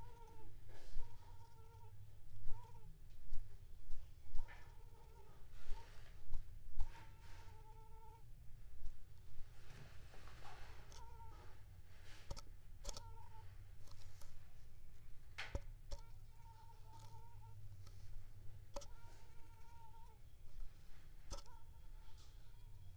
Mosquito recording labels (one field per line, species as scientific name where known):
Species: Aedes aegypti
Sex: female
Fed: unfed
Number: one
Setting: cup